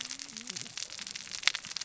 {"label": "biophony, cascading saw", "recorder": "SoundTrap 600 or HydroMoth"}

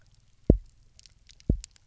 {"label": "biophony, double pulse", "recorder": "SoundTrap 300"}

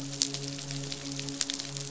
{"label": "biophony, midshipman", "recorder": "SoundTrap 500"}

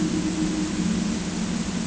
{"label": "ambient", "recorder": "HydroMoth"}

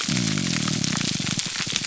{"label": "biophony, grouper groan", "recorder": "SoundTrap 300"}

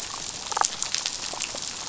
{"label": "biophony, damselfish", "recorder": "SoundTrap 500"}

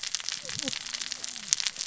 {"label": "biophony, cascading saw", "recorder": "SoundTrap 600 or HydroMoth"}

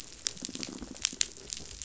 {"label": "biophony", "recorder": "SoundTrap 500"}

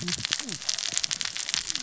{"label": "biophony, cascading saw", "recorder": "SoundTrap 600 or HydroMoth"}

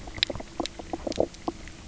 {"label": "biophony, knock croak", "recorder": "SoundTrap 300"}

